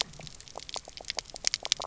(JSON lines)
{"label": "biophony, knock croak", "recorder": "SoundTrap 300"}